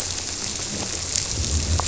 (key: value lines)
label: biophony
recorder: SoundTrap 300